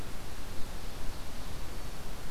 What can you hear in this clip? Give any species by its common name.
Ovenbird